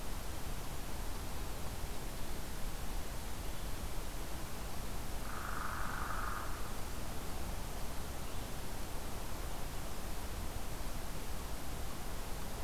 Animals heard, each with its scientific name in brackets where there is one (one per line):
Hairy Woodpecker (Dryobates villosus)